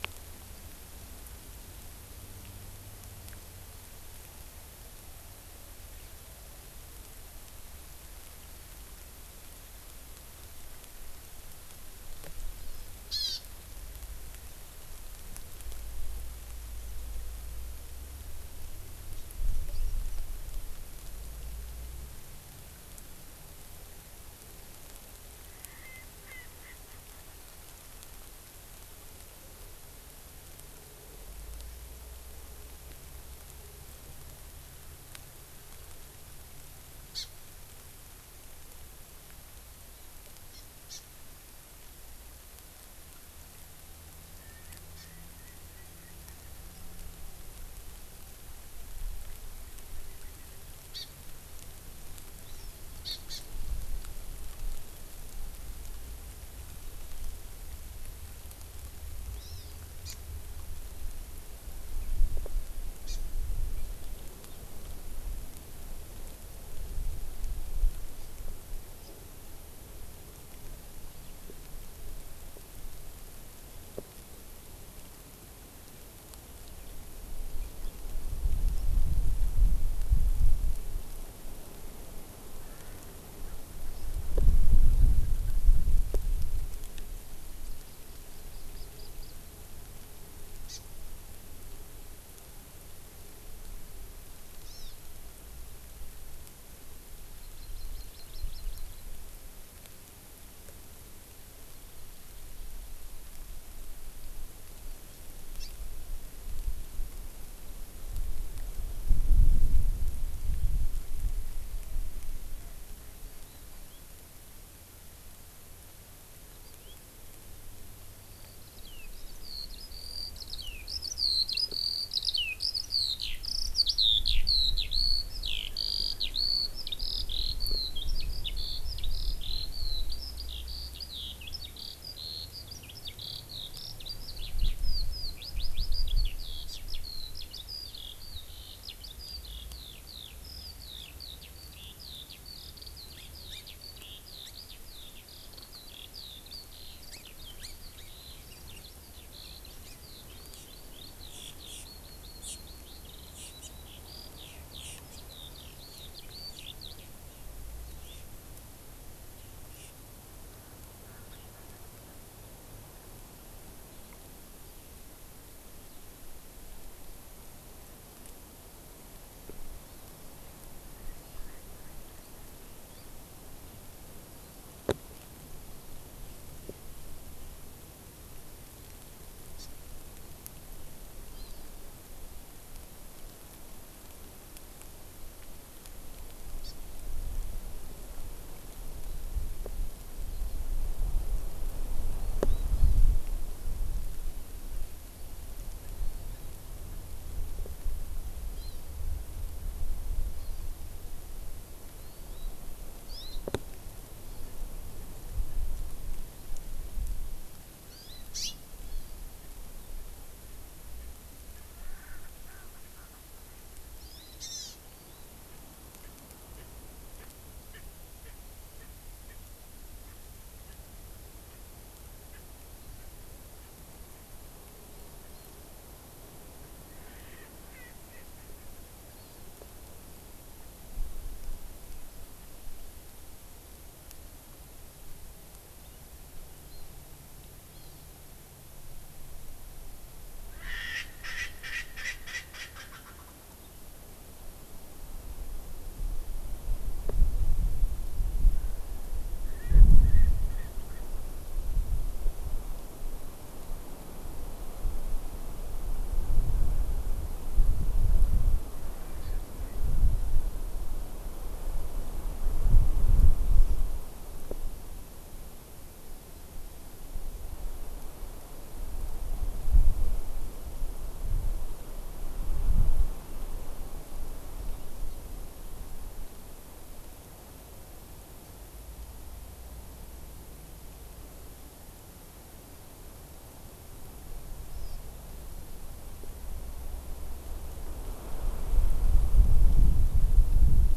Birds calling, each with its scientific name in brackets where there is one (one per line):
Hawaii Amakihi (Chlorodrepanis virens)
Erckel's Francolin (Pternistis erckelii)
Hawaiian Hawk (Buteo solitarius)
Eurasian Skylark (Alauda arvensis)